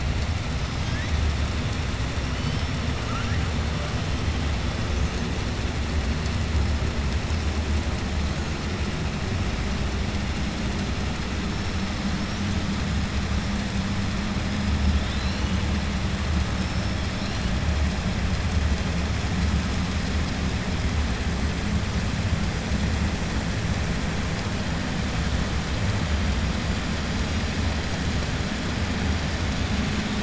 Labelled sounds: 3.0	3.4	killer whale, 1.2 to 3.1 kHz

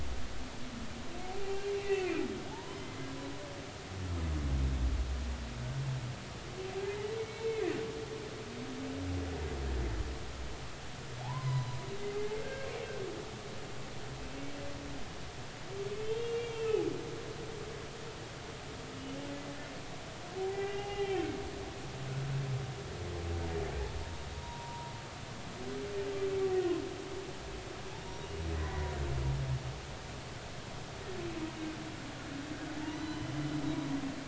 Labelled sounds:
1.8	3.0	humpback whale, 0.80 to 3.1 kHz
7.2	7.6	humpback whale, 2.1 to 2.8 kHz
11.2	12.7	humpback whale, 0.80 to 4.2 kHz
15.9	16.8	humpback whale, 2.2 to 3.4 kHz
20.4	21.3	humpback whale, 0.80 to 3.2 kHz
24.4	24.9	humpback whale, 0.90 to 1.0 kHz
28.0	28.9	humpback whale, 0.93 to 5.8 kHz
32.9	33.3	humpback whale, 2.9 to 4.1 kHz

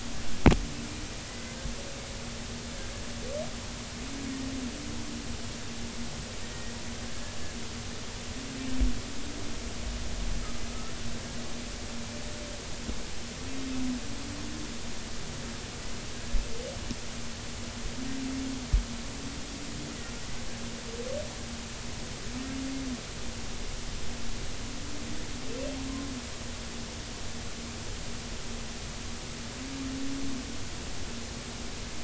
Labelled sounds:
1.3	1.6	humpback whale, 2.0 to 2.1 kHz
10.7	10.9	humpback whale, 1.2 to 1.4 kHz

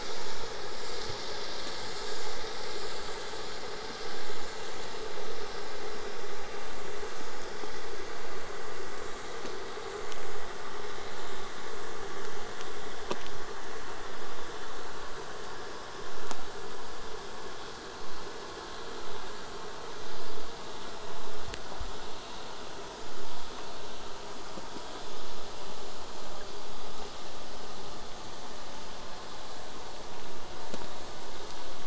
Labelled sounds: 0.0	5.0	vessel noise, 0 to 8.0 kHz

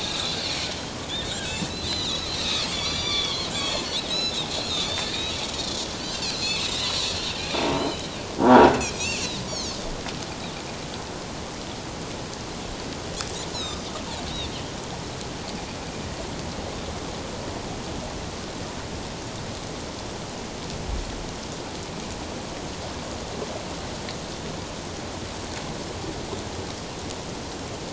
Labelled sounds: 0.0	2.4	Pacific white-sided dolphin, 1.4 to 7.6 kHz
2.7	5.1	Pacific white-sided dolphin, 2.0 to 7.1 kHz
6.0	7.0	Pacific white-sided dolphin, 2.1 to 7.7 kHz
7.4	7.6	Pacific white-sided dolphin, 2.3 to 2.5 kHz
7.7	8.1	croaking sound likely from a nearby submerged object, 3.8 to 4.2 kHz
8.4	9.8	Pacific white-sided dolphin, 0.81 to 6.9 kHz
13.5	13.8	Pacific white-sided dolphin, 3.5 to 6.8 kHz

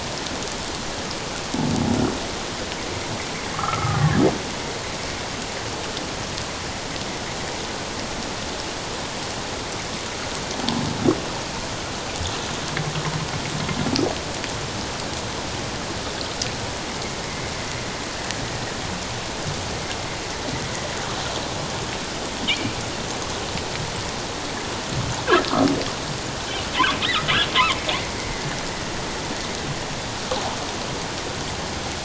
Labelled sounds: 3.5	4.0	humpback whale, 1.0 to 1.4 kHz
22.5	22.8	humpback whale, 2.1 to 2.5 kHz

